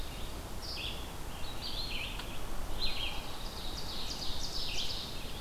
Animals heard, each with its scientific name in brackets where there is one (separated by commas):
Ovenbird (Seiurus aurocapilla), Red-eyed Vireo (Vireo olivaceus)